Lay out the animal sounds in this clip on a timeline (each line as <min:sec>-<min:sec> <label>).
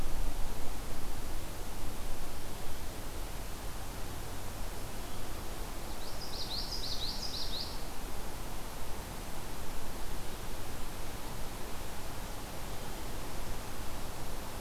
0:05.9-0:07.8 Common Yellowthroat (Geothlypis trichas)